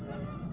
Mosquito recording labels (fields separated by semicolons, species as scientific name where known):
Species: Aedes albopictus; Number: several; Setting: insect culture